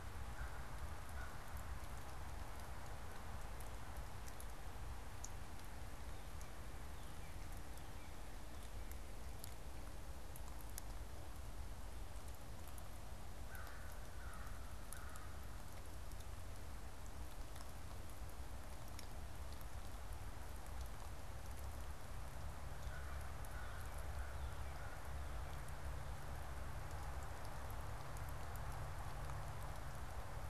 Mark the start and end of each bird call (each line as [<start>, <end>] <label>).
[0.00, 1.59] American Crow (Corvus brachyrhynchos)
[6.09, 8.89] Northern Cardinal (Cardinalis cardinalis)
[13.29, 15.49] American Crow (Corvus brachyrhynchos)
[22.59, 25.09] American Crow (Corvus brachyrhynchos)
[22.70, 25.80] Northern Cardinal (Cardinalis cardinalis)